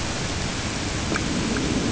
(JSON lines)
{"label": "ambient", "recorder": "HydroMoth"}